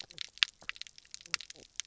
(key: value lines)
label: biophony, knock croak
recorder: SoundTrap 300